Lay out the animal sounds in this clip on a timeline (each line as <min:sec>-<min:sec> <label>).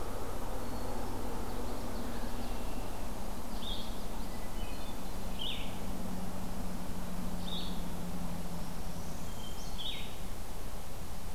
0:00.6-0:01.5 Hermit Thrush (Catharus guttatus)
0:01.4-0:02.6 Common Yellowthroat (Geothlypis trichas)
0:02.2-0:03.1 Red-winged Blackbird (Agelaius phoeniceus)
0:03.4-0:04.4 Common Yellowthroat (Geothlypis trichas)
0:03.4-0:03.9 Blue-headed Vireo (Vireo solitarius)
0:04.5-0:05.3 Hermit Thrush (Catharus guttatus)
0:05.3-0:05.7 Blue-headed Vireo (Vireo solitarius)
0:07.4-0:07.8 Blue-headed Vireo (Vireo solitarius)
0:08.5-0:09.8 Northern Parula (Setophaga americana)
0:09.2-0:09.7 Hermit Thrush (Catharus guttatus)
0:09.6-0:10.1 Blue-headed Vireo (Vireo solitarius)